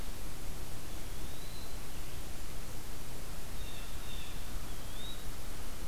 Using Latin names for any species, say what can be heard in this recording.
Contopus virens, Cyanocitta cristata